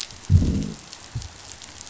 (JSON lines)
{"label": "biophony, growl", "recorder": "SoundTrap 500"}